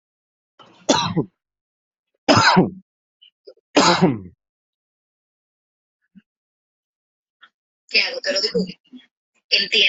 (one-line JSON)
{"expert_labels": [{"quality": "ok", "cough_type": "dry", "dyspnea": false, "wheezing": false, "stridor": false, "choking": false, "congestion": false, "nothing": true, "diagnosis": "lower respiratory tract infection", "severity": "mild"}]}